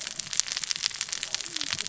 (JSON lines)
{"label": "biophony, cascading saw", "recorder": "SoundTrap 600 or HydroMoth"}